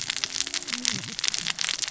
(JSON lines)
{"label": "biophony, cascading saw", "recorder": "SoundTrap 600 or HydroMoth"}